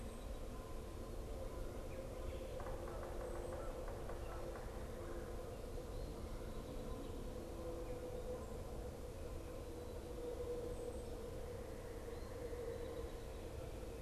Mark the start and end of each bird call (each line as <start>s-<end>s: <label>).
0.0s-5.5s: Canada Goose (Branta canadensis)
2.4s-5.0s: Yellow-bellied Sapsucker (Sphyrapicus varius)